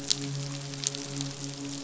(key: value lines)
label: biophony, midshipman
recorder: SoundTrap 500